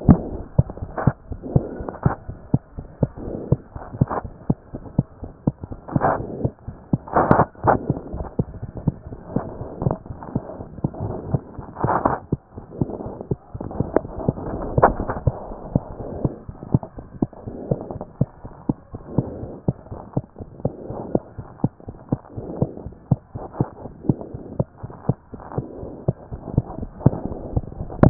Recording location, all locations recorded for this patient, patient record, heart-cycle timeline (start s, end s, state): pulmonary valve (PV)
aortic valve (AV)+pulmonary valve (PV)+tricuspid valve (TV)+mitral valve (MV)
#Age: Child
#Sex: Male
#Height: 93.0 cm
#Weight: 15.4 kg
#Pregnancy status: False
#Murmur: Absent
#Murmur locations: nan
#Most audible location: nan
#Systolic murmur timing: nan
#Systolic murmur shape: nan
#Systolic murmur grading: nan
#Systolic murmur pitch: nan
#Systolic murmur quality: nan
#Diastolic murmur timing: nan
#Diastolic murmur shape: nan
#Diastolic murmur grading: nan
#Diastolic murmur pitch: nan
#Diastolic murmur quality: nan
#Outcome: Abnormal
#Campaign: 2014 screening campaign
0.00	21.30	unannotated
21.30	21.38	diastole
21.38	21.46	S1
21.46	21.64	systole
21.64	21.72	S2
21.72	21.88	diastole
21.88	21.96	S1
21.96	22.12	systole
22.12	22.20	S2
22.20	22.34	diastole
22.34	22.44	S1
22.44	22.60	systole
22.60	22.70	S2
22.70	22.84	diastole
22.84	22.94	S1
22.94	23.10	systole
23.10	23.20	S2
23.20	23.34	diastole
23.34	23.44	S1
23.44	23.60	systole
23.60	23.68	S2
23.68	23.80	diastole
23.80	23.90	S1
23.90	24.08	systole
24.08	24.18	S2
24.18	24.32	diastole
24.32	24.42	S1
24.42	24.58	systole
24.58	24.68	S2
24.68	24.82	diastole
24.82	24.92	S1
24.92	25.08	systole
25.08	25.18	S2
25.18	25.32	diastole
25.32	25.40	S1
25.40	25.56	systole
25.56	25.66	S2
25.66	25.80	diastole
25.80	25.90	S1
25.90	26.08	systole
26.08	26.16	S2
26.16	26.30	diastole
26.30	26.40	S1
26.40	26.56	systole
26.56	26.66	S2
26.66	26.78	diastole
26.78	28.10	unannotated